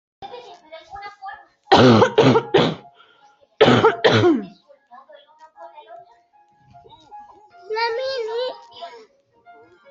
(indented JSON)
{
  "expert_labels": [
    {
      "quality": "ok",
      "cough_type": "dry",
      "dyspnea": false,
      "wheezing": false,
      "stridor": false,
      "choking": false,
      "congestion": false,
      "nothing": true,
      "diagnosis": "lower respiratory tract infection",
      "severity": "mild"
    }
  ],
  "gender": "female",
  "respiratory_condition": false,
  "fever_muscle_pain": false,
  "status": "COVID-19"
}